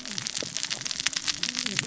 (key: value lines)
label: biophony, cascading saw
recorder: SoundTrap 600 or HydroMoth